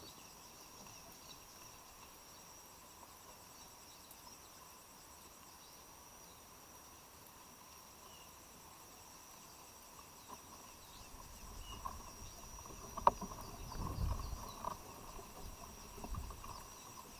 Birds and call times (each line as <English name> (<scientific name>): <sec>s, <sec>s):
Kikuyu White-eye (Zosterops kikuyuensis): 11.4s